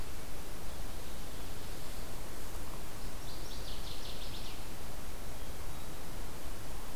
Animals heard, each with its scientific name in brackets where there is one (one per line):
Hermit Thrush (Catharus guttatus)
Northern Waterthrush (Parkesia noveboracensis)